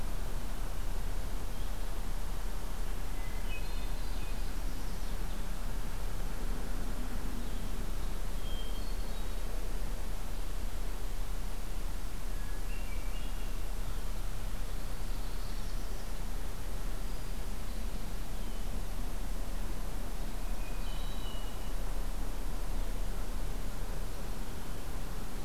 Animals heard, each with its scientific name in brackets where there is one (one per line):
Blue-headed Vireo (Vireo solitarius)
Northern Parula (Setophaga americana)
Hermit Thrush (Catharus guttatus)